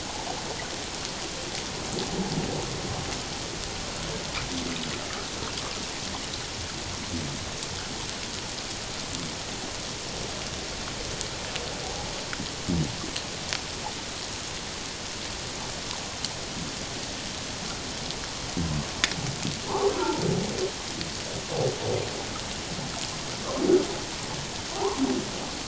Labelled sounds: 19.7	20.2	humpback whale, 0.78 to 1.3 kHz
24.8	25.0	humpback whale, 0.78 to 1.2 kHz

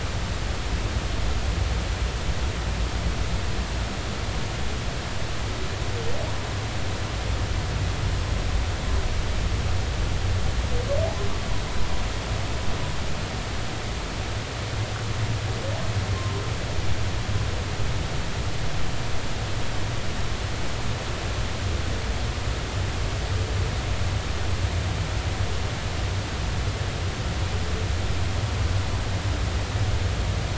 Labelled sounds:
16.1	16.4	humpback whale, 0.93 to 1.1 kHz

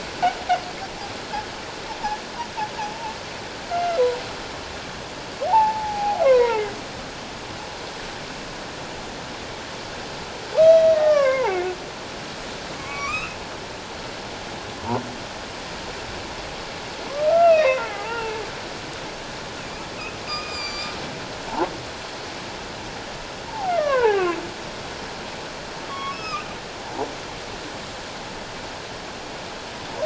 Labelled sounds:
5.5	6.8	humpback whale, 0.78 to 2.3 kHz
10.6	11.8	humpback whale, 0.78 to 5.9 kHz
12.7	13.4	humpback whale, 1.0 to 2.8 kHz
17.1	18.4	humpback whale, 0.78 to 3.9 kHz
19.6	20.9	humpback whale, 1.1 to 7.4 kHz
23.5	24.4	humpback whale, 0.78 to 1.9 kHz
25.9	26.5	humpback whale, 1.0 to 5.4 kHz
26.8	27.1	humpback whale, 0.78 to 1.0 kHz

